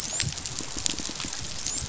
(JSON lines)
{"label": "biophony, dolphin", "recorder": "SoundTrap 500"}